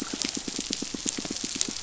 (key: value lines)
label: biophony, pulse
recorder: SoundTrap 500